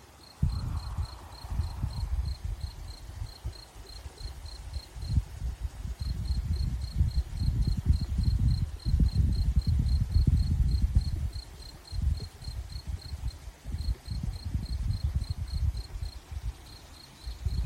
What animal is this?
Gryllus campestris, an orthopteran